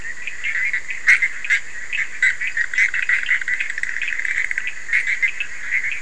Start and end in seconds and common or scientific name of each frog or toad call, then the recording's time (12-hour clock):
0.9	6.0	Bischoff's tree frog
3:00am